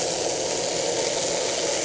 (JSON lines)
{"label": "anthrophony, boat engine", "recorder": "HydroMoth"}